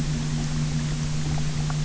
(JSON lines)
{"label": "anthrophony, boat engine", "recorder": "SoundTrap 300"}